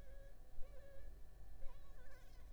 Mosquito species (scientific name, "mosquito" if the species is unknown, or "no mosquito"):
Anopheles funestus s.l.